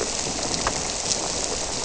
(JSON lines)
{"label": "biophony", "recorder": "SoundTrap 300"}